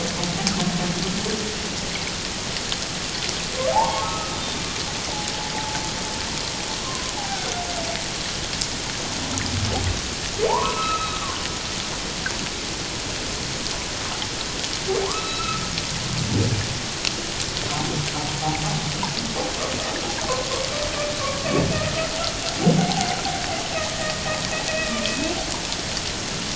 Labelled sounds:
3.7	4.6	humpback whale, 0.78 to 3.7 kHz
6.8	7.5	humpback whale, 0.78 to 1.2 kHz
10.5	11.2	humpback whale, 0.78 to 2.7 kHz
15.0	15.6	humpback whale, 0.78 to 4.0 kHz
21.7	23.1	humpback whale, 0.78 to 1.4 kHz
23.9	25.4	humpback whale, 1.8 to 2.8 kHz

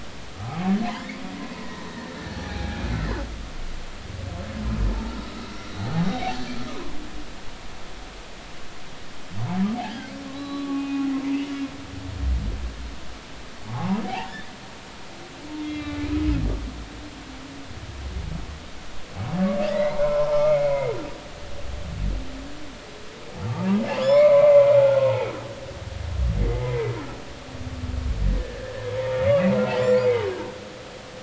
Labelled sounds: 0.4	2.8	humpback whale, 0.80 to 2.5 kHz
5.7	6.4	humpback whale, 0.80 to 4.2 kHz
6.7	6.9	humpback whale, 0.93 to 1.3 kHz
9.8	11.1	humpback whale, 1.0 to 4.0 kHz
13.7	14.5	humpback whale, 0.80 to 2.0 kHz
15.6	16.0	humpback whale, 2.0 to 4.0 kHz
19.7	20.6	humpback whale, 0.83 to 2.3 kHz
23.5	25.3	humpback whale, 0.80 to 7.3 kHz
28.4	30.0	humpback whale, 0.86 to 2.0 kHz
30.3	30.6	humpback whale, 1.5 to 1.7 kHz

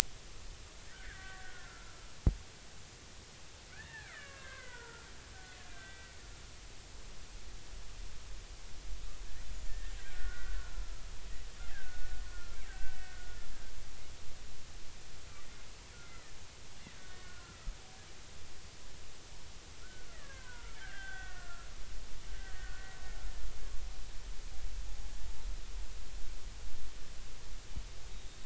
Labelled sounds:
0.9	2.1	killer whale, Bigg's (transient), 1.1 to 2.1 kHz
3.7	5.1	killer whale, Bigg's (transient), 0.86 to 2.5 kHz
5.7	6.1	killer whale, Bigg's (transient), 1.5 to 2.0 kHz
9.7	10.7	killer whale, Bigg's (transient), 1.3 to 2.0 kHz
11.7	13.1	killer whale, Bigg's (transient), 1.3 to 2.0 kHz
17.1	17.7	killer whale, Bigg's (transient), 1.2 to 1.9 kHz
19.8	22.9	killer whale, Bigg's (transient), 0.90 to 3.6 kHz

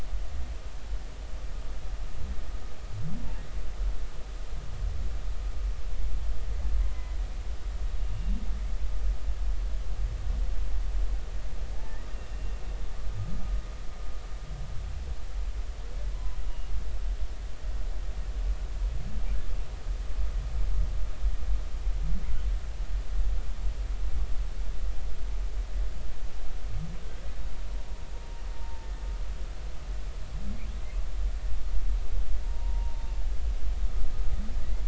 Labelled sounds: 6.8	7.2	humpback whale, 0.93 to 2.1 kHz
8.0	8.4	humpback whale, 2.7 to 2.9 kHz
11.7	12.0	humpback whale, 0.80 to 0.93 kHz
12.3	12.6	humpback whale, 2.7 to 2.8 kHz
16.1	16.7	humpback whale, 0.96 to 2.9 kHz
28.6	28.9	humpback whale, 0.83 to 0.96 kHz
32.4	33.1	humpback whale, 0.86 to 0.99 kHz

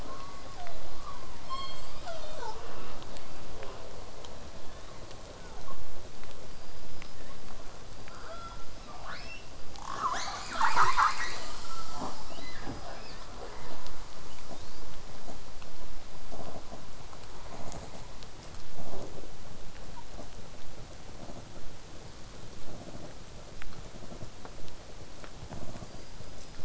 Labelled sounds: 0.1	1.4	killer whale, southern resident, 0.41 to 2.3 kHz
1.4	2.7	killer whale, southern resident, J pod, call S07, 0.26 to 8.0 kHz
5.3	5.8	killer whale, southern resident, 0.22 to 1.4 kHz
6.5	7.4	killer whale, southern resident, whistle, 0.98 to 5.3 kHz
7.8	9.6	killer whale, southern resident, 0.45 to 8.0 kHz
8.1	8.7	killer whale, southern resident, L pod, call S18, 0.41 to 3.6 kHz
9.8	11.5	killer whale, southern resident, call S10, 0.23 to 8.0 kHz
12.3	13.3	killer whale, southern resident, 0.19 to 8.0 kHz
14.5	14.8	killer whale, southern resident, whistle, 3.4 to 5.0 kHz
17.5	19.4	killer whale, southern resident, 3.1 to 8.0 kHz
25.8	26.6	killer whale, southern resident, 4.5 to 5.2 kHz

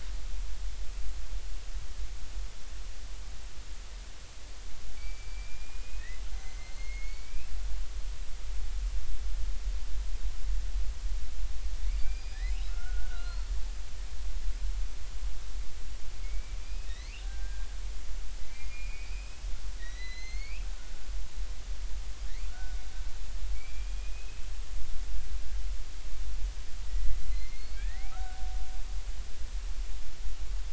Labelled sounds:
5.0	7.5	killer whale, Bigg's (transient), 1.7 to 6.7 kHz
12.0	13.4	killer whale, Bigg's (transient), 1.2 to 5.3 kHz
16.2	17.7	killer whale, Bigg's (transient), 1.5 to 5.1 kHz
18.4	19.5	killer whale, Bigg's (transient), 2.0 to 2.7 kHz
19.8	20.7	killer whale, Bigg's (transient), 1.7 to 4.5 kHz
22.5	24.5	killer whale, Bigg's (transient), 1.3 to 2.7 kHz
26.9	28.4	killer whale, Bigg's (transient), 0.80 to 4.6 kHz

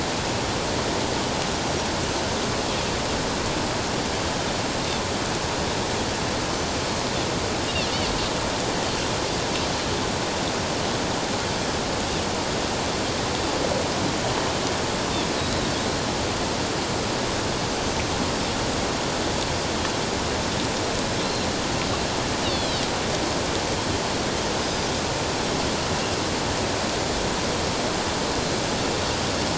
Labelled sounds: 6.5	6.8	Pacific white-sided dolphin, 5.9 to 6.2 kHz
15.4	15.7	Pacific white-sided dolphin, 3.7 to 4.1 kHz
17.8	18.1	Pacific white-sided dolphin, 5.9 to 6.2 kHz
21.2	21.5	Pacific white-sided dolphin, 4.0 to 4.3 kHz
22.4	22.9	Pacific white-sided dolphin, 2.8 to 4.6 kHz
24.6	24.9	Pacific white-sided dolphin, 4.8 to 5.0 kHz

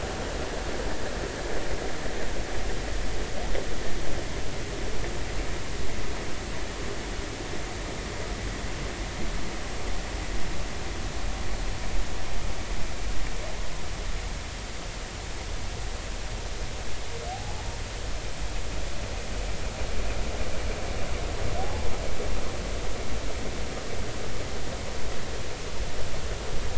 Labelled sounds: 17.3	17.6	humpback whale, 0.80 to 0.90 kHz
21.6	21.9	humpback whale, 0.80 to 0.90 kHz

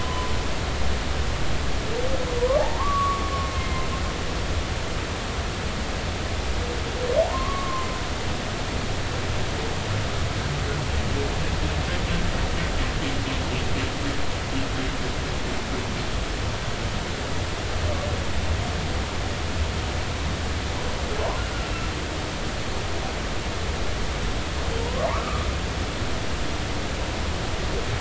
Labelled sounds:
2.4	3.8	humpback whale, 0.80 to 2.2 kHz
7.2	7.9	humpback whale, 0.80 to 1.2 kHz
21.7	21.9	humpback whale, 2.6 to 2.8 kHz
24.8	25.5	humpback whale, 0.80 to 1.4 kHz

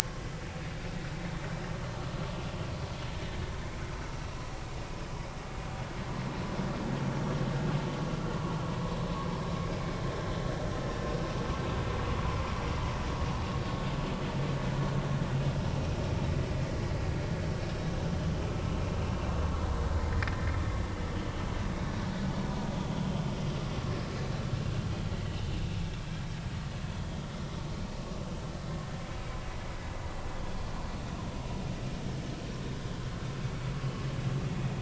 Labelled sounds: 9.8	10.0	vessel noise, 2.1 to 2.5 kHz
18.5	18.7	vessel noise, 1.2 to 1.3 kHz
22.9	23.2	vessel noise, 3.0 to 3.2 kHz
25.5	25.8	vessel noise, 2.6 to 3.0 kHz

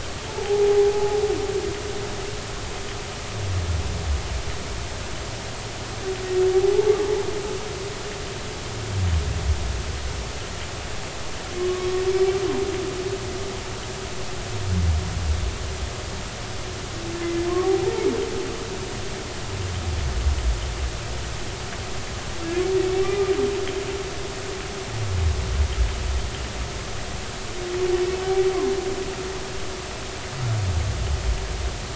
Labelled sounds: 0.3	1.2	humpback whale, 0.80 to 0.93 kHz
6.5	6.9	humpback whale, 0.80 to 0.93 kHz
11.6	11.9	humpback whale, 1.0 to 1.2 kHz
17.5	17.7	humpback whale, 0.99 to 1.2 kHz

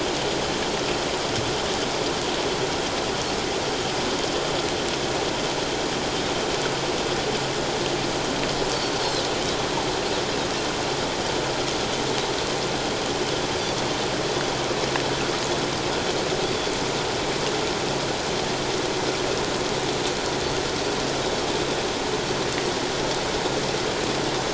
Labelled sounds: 8.9	9.2	Pacific white-sided dolphin, 4.0 to 4.4 kHz

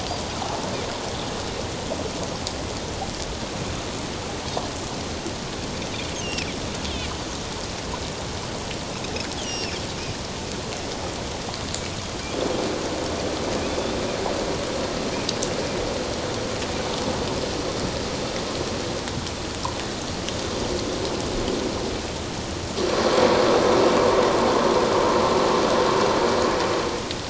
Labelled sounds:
6.2	6.6	Pacific white-sided dolphin, 2.1 to 3.0 kHz
9.4	9.8	Pacific white-sided dolphin, 2.2 to 5.9 kHz
13.7	13.9	Pacific white-sided dolphin, 3.4 to 3.6 kHz

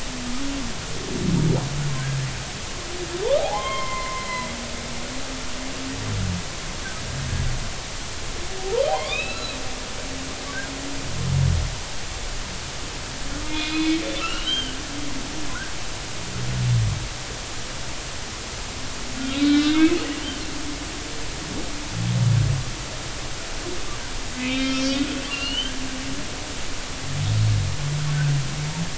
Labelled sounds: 3.4	4.5	humpback whale, 0.80 to 4.2 kHz
8.8	9.6	humpback whale, 0.90 to 4.1 kHz
13.5	14.8	humpback whale, 1.2 to 3.8 kHz
19.4	20.0	humpback whale, 1.4 to 4.2 kHz
24.4	25.0	humpback whale, 2.3 to 5.7 kHz
25.3	25.7	humpback whale, 2.7 to 4.4 kHz

